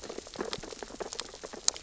{"label": "biophony, sea urchins (Echinidae)", "recorder": "SoundTrap 600 or HydroMoth"}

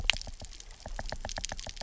{"label": "biophony, knock", "recorder": "SoundTrap 300"}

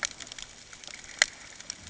{"label": "ambient", "recorder": "HydroMoth"}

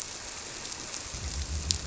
{"label": "biophony", "recorder": "SoundTrap 300"}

